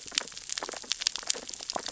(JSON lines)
{"label": "biophony, sea urchins (Echinidae)", "recorder": "SoundTrap 600 or HydroMoth"}